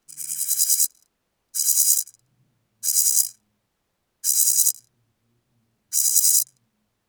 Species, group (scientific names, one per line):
Chorthippus jacobsi
Orthoptera